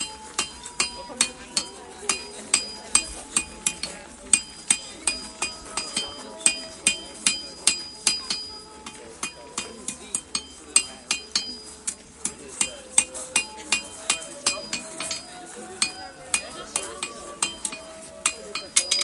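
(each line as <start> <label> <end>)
0.3 Footsteps and voices in a crowd are combined with rhythmic hammering on an anvil, with music heard in the background, creating a lively and industrious atmosphere. 19.0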